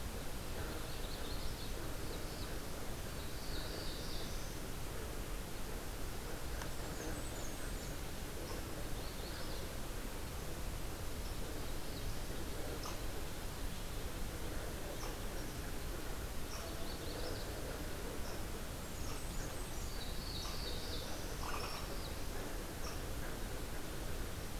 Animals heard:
Black-throated Blue Warbler (Setophaga caerulescens)
Magnolia Warbler (Setophaga magnolia)
Blackburnian Warbler (Setophaga fusca)

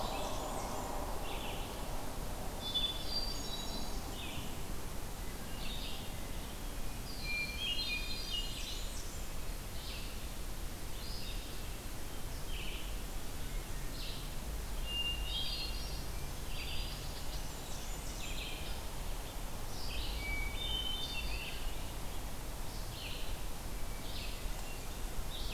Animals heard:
Blackburnian Warbler (Setophaga fusca)
Hermit Thrush (Catharus guttatus)
Red-eyed Vireo (Vireo olivaceus)
Black-throated Green Warbler (Setophaga virens)

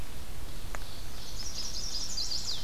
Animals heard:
Chestnut-sided Warbler (Setophaga pensylvanica)
Ovenbird (Seiurus aurocapilla)

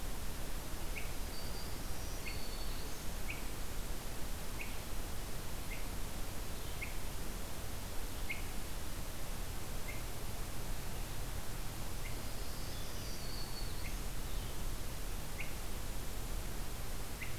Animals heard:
Black-throated Green Warbler (Setophaga virens)
Blue-headed Vireo (Vireo solitarius)
Swainson's Thrush (Catharus ustulatus)

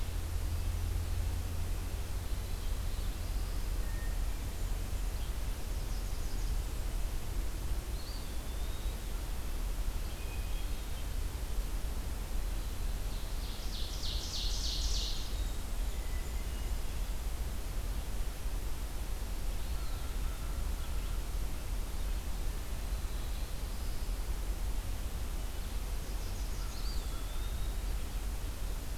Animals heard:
Red-breasted Nuthatch (Sitta canadensis)
Blackburnian Warbler (Setophaga fusca)
Ovenbird (Seiurus aurocapilla)
American Crow (Corvus brachyrhynchos)
Black-throated Blue Warbler (Setophaga caerulescens)
Hermit Thrush (Catharus guttatus)
Eastern Wood-Pewee (Contopus virens)
Northern Parula (Setophaga americana)

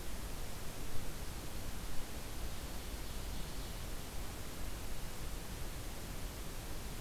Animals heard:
Ovenbird (Seiurus aurocapilla)

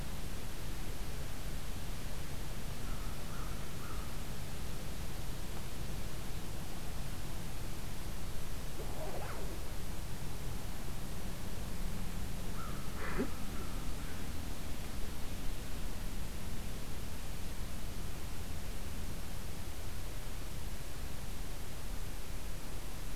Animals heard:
American Crow (Corvus brachyrhynchos)

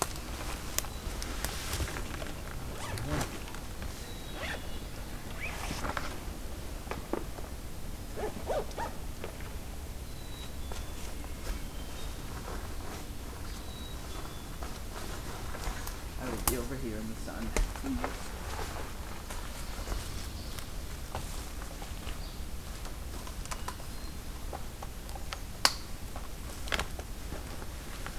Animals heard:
Hermit Thrush (Catharus guttatus)
Black-capped Chickadee (Poecile atricapillus)

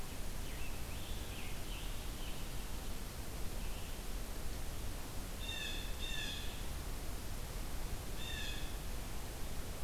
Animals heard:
Blue Jay (Cyanocitta cristata)
Scarlet Tanager (Piranga olivacea)

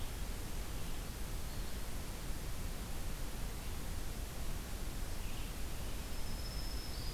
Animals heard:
Black-throated Green Warbler (Setophaga virens)
Blue-headed Vireo (Vireo solitarius)

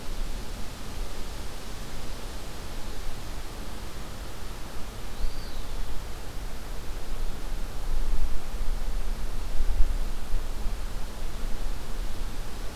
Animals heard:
Eastern Wood-Pewee (Contopus virens)

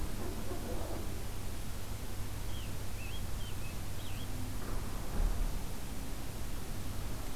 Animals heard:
Scarlet Tanager (Piranga olivacea)

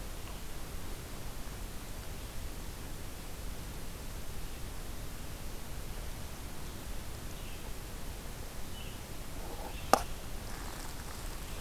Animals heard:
Red-eyed Vireo (Vireo olivaceus)

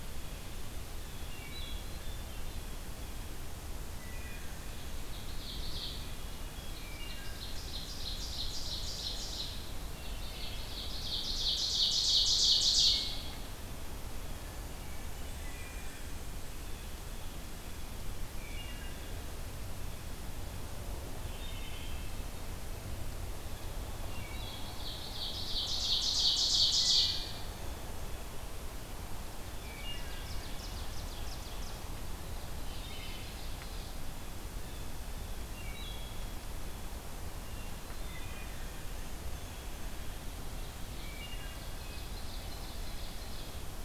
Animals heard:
Ovenbird (Seiurus aurocapilla)
Hermit Thrush (Catharus guttatus)
Blue Jay (Cyanocitta cristata)
Black-and-white Warbler (Mniotilta varia)
Wood Thrush (Hylocichla mustelina)

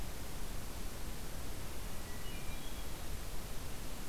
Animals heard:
Hermit Thrush (Catharus guttatus)

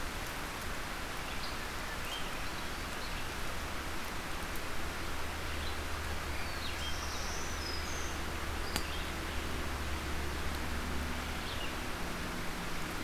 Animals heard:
Swainson's Thrush (Catharus ustulatus)
Black-throated Green Warbler (Setophaga virens)
Black-throated Blue Warbler (Setophaga caerulescens)
Red-eyed Vireo (Vireo olivaceus)

